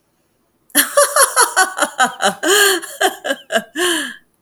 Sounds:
Laughter